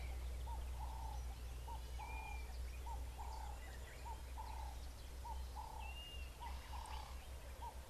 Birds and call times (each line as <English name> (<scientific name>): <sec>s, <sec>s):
Ring-necked Dove (Streptopelia capicola): 3.3s
Blue-naped Mousebird (Urocolius macrourus): 6.1s